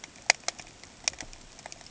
{"label": "ambient", "recorder": "HydroMoth"}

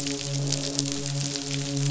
{"label": "biophony, midshipman", "recorder": "SoundTrap 500"}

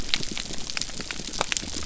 {"label": "biophony", "recorder": "SoundTrap 300"}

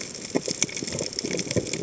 {"label": "biophony", "recorder": "HydroMoth"}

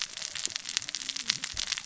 {"label": "biophony, cascading saw", "recorder": "SoundTrap 600 or HydroMoth"}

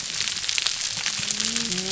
{"label": "biophony, whup", "recorder": "SoundTrap 300"}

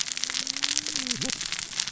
{"label": "biophony, cascading saw", "recorder": "SoundTrap 600 or HydroMoth"}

